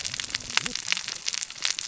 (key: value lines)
label: biophony, cascading saw
recorder: SoundTrap 600 or HydroMoth